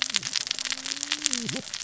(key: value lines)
label: biophony, cascading saw
recorder: SoundTrap 600 or HydroMoth